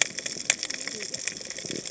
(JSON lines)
{"label": "biophony, cascading saw", "recorder": "HydroMoth"}